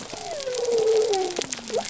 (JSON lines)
{"label": "biophony", "recorder": "SoundTrap 300"}